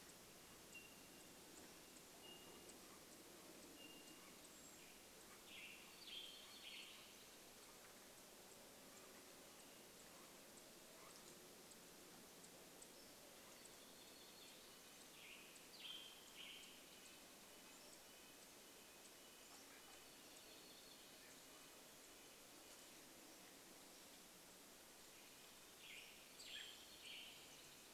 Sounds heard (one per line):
unidentified bird chip note
Canada Jay call
warbler song
Pacific-slope Flycatcher song
Golden-crowned Kinglet call
American Robin call
Pacific-slope Flycatcher call
Western Tanager song
Red-breasted Nuthatch song
Townsend's Solitaire call